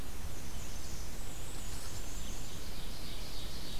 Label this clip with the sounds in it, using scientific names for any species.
Mniotilta varia, Seiurus aurocapilla